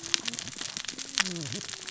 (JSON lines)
{"label": "biophony, cascading saw", "recorder": "SoundTrap 600 or HydroMoth"}